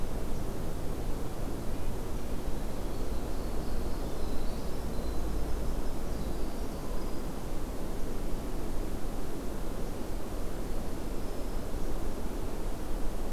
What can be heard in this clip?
Winter Wren, Black-throated Green Warbler